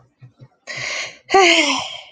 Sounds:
Sigh